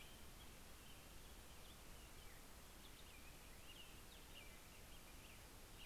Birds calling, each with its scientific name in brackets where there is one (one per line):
American Robin (Turdus migratorius)
Black-headed Grosbeak (Pheucticus melanocephalus)